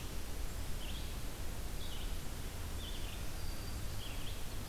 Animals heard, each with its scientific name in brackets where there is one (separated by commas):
Red-eyed Vireo (Vireo olivaceus)